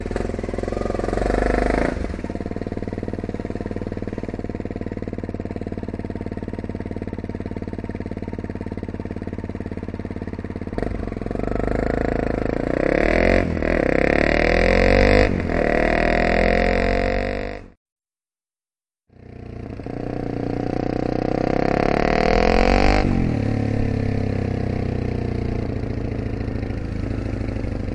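Motorcycle engine starting with a distinctive single-cylinder sound. 0.0 - 2.1
The sound of a single-cylinder motorcycle engine idling. 2.1 - 10.7
A motorcycle accelerates with a distinctive single-cylinder engine sound. 10.8 - 17.8
A motorcycle accelerates with a distinctive single-cylinder engine sound. 19.2 - 23.4
Motorcycle engine sound during deceleration. 23.4 - 27.9

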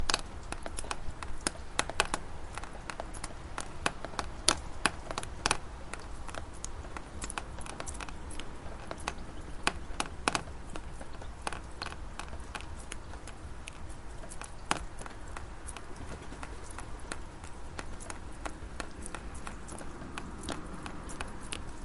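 Light raindrops falling at a slow, steady pace. 0.0 - 21.8

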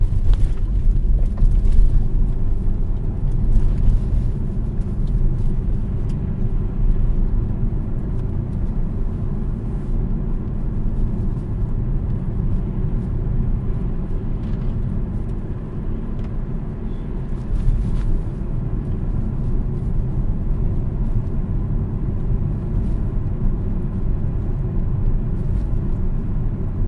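Interior sounds of a moving electric car, including road noise, subtle wind, and cabin sounds. 0.0 - 26.9

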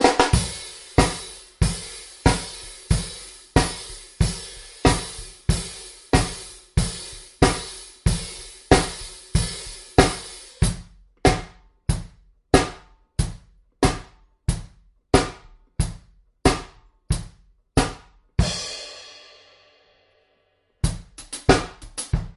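Drum kit hits a fast, rhythmic pattern that repeats and fades. 0.0 - 1.0
Big drums hit loudly in a repeating pattern indoors. 1.0 - 11.1
Hi-hats hit with a metallic sound in a fading, repeating pattern. 1.0 - 11.1
Drums are hitting loudly in a repeating pattern. 11.2 - 18.2
Hi-hats hit with a metallic sound in a fading pattern. 18.4 - 20.8
A drum kit plays a fast, rhythmic, repeating pattern. 20.8 - 22.4

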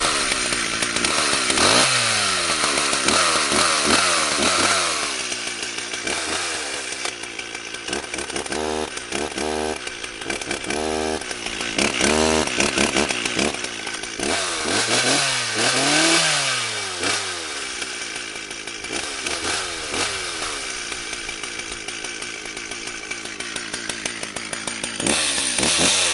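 A chainsaw roars and its sharp, grinding buzz rises and falls with each cut through wood. 0.1 - 26.1

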